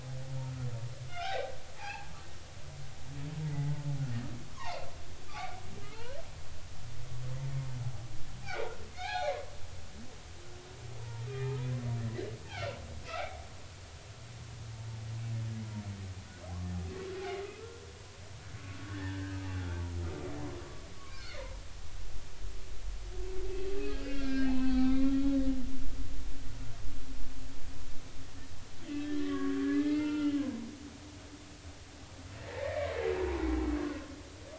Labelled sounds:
1.1	2.1	humpback whale, 0.80 to 3.9 kHz
3.5	4.9	humpback whale, 0.80 to 2.9 kHz
5.3	6.2	humpback whale, 0.80 to 3.1 kHz
8.4	9.4	humpback whale, 0.80 to 4.3 kHz
11.0	11.6	humpback whale, 0.86 to 2.5 kHz
12.5	12.8	humpback whale, 1.3 to 2.7 kHz
17.2	17.6	humpback whale, 2.0 to 2.2 kHz
18.9	19.8	humpback whale, 1.3 to 1.9 kHz
20.6	21.5	humpback whale, 0.96 to 4.5 kHz
23.8	25.4	humpback whale, 0.80 to 4.3 kHz
28.9	30.7	humpback whale, 0.86 to 3.0 kHz
32.4	32.9	humpback whale, 1.7 to 2.4 kHz
33.4	33.7	humpback whale, 0.80 to 0.90 kHz

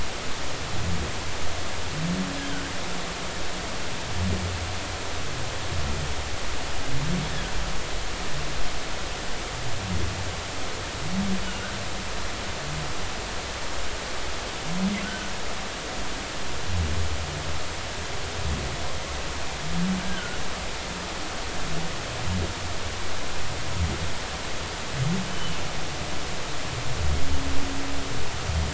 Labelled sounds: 2.4	2.6	humpback whale, 1.4 to 1.7 kHz
15.0	15.3	humpback whale, 1.4 to 1.6 kHz
20.0	20.4	humpback whale, 1.4 to 1.7 kHz
25.3	25.6	humpback whale, 2.8 to 3.1 kHz

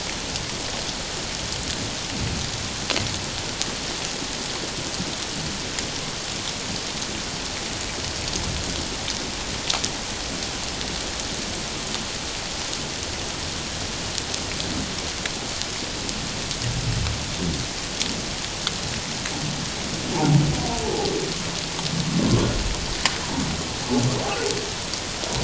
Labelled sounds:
20.8	21.1	humpback whale, 0.78 to 0.91 kHz

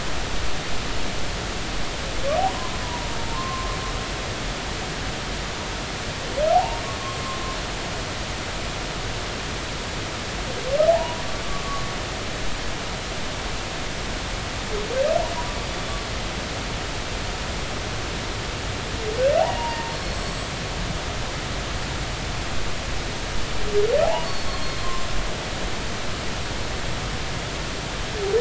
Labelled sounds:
3.3	3.8	humpback whale, 0.99 to 1.1 kHz
6.5	6.8	humpback whale, 0.80 to 0.99 kHz
10.9	11.2	humpback whale, 0.80 to 1.0 kHz
11.6	11.9	humpback whale, 1.1 to 1.2 kHz
19.4	20.5	humpback whale, 0.80 to 7.8 kHz
24.5	25.1	humpback whale, 0.99 to 4.4 kHz

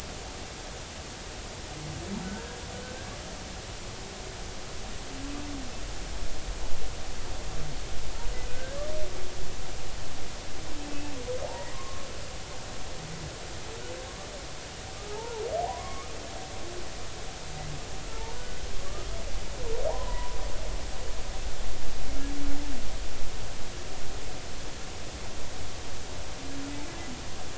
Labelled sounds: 8.5	8.9	humpback whale, 1.5 to 1.8 kHz
10.8	12.1	humpback whale, 0.80 to 2.7 kHz
14.1	14.3	humpback whale, 1.0 to 1.2 kHz
14.9	16.1	humpback whale, 0.80 to 1.3 kHz
18.1	18.4	humpback whale, 0.86 to 1.0 kHz
19.9	20.4	humpback whale, 0.80 to 1.1 kHz

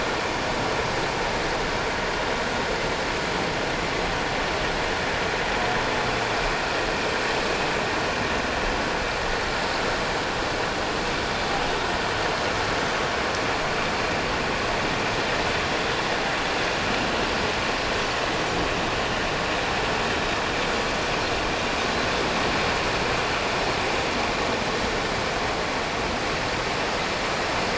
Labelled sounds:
12.8	13.1	humpback whale, 5.9 to 6.2 kHz

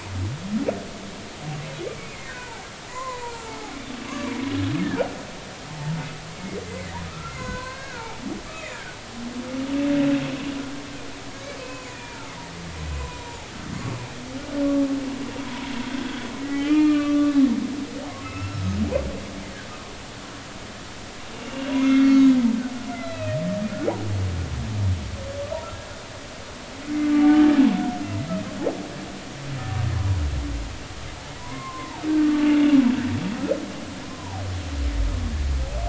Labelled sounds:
2.1	3.7	humpback whale, 0.80 to 2.5 kHz
4.1	4.3	humpback whale, 0.96 to 1.2 kHz
4.8	5.2	humpback whale, 1.4 to 1.9 kHz
5.7	6.6	humpback whale, 0.83 to 2.3 kHz
7.0	9.0	humpback whale, 0.80 to 4.4 kHz
11.6	12.3	humpback whale, 0.83 to 2.6 kHz
13.0	13.5	humpback whale, 0.80 to 1.1 kHz
15.4	17.4	humpback whale, 0.90 to 4.3 kHz
18.2	18.8	humpback whale, 1.2 to 5.4 kHz
21.4	22.3	humpback whale, 1.2 to 4.7 kHz
22.9	23.4	humpback whale, 1.9 to 4.1 kHz
27.1	27.4	humpback whale, 1.1 to 1.2 kHz
29.9	30.2	humpback whale, 0.93 to 1.1 kHz
31.4	32.5	humpback whale, 0.80 to 1.6 kHz
34.1	34.4	humpback whale, 0.80 to 1.1 kHz

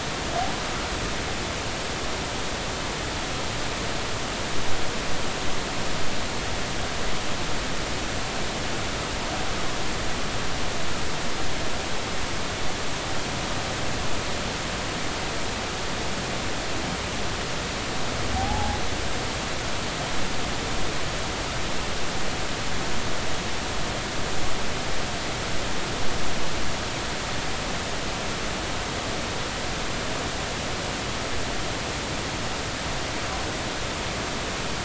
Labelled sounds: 18.3	18.8	humpback whale, 0.80 to 0.93 kHz

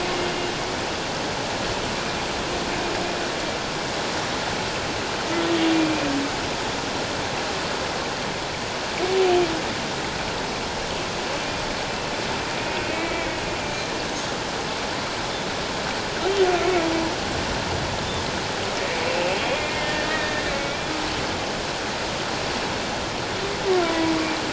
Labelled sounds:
0.0	0.3	humpback whale, 2.0 to 2.2 kHz
12.9	13.9	humpback whale, 1.9 to 2.4 kHz
19.0	20.9	humpback whale, 1.7 to 2.8 kHz
23.8	24.1	humpback whale, 0.94 to 1.0 kHz

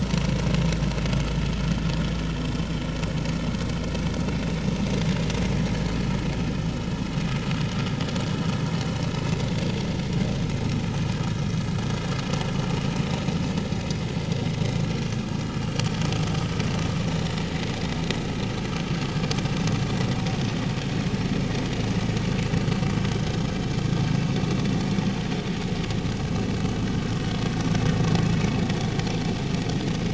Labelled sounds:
15.6	16.0	vessel noise, 4.3 to 5.7 kHz

